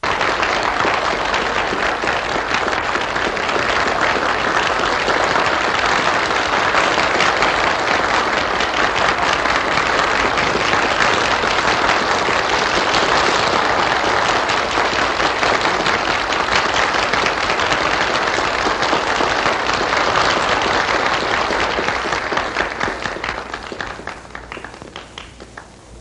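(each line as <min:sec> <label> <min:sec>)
0:00.0 An intense crowd applause gradually fading away. 0:26.0
0:24.0 White noise. 0:26.0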